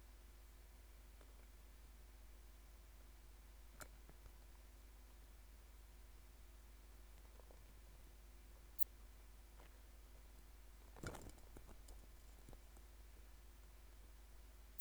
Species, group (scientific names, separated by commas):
Phaneroptera falcata, Orthoptera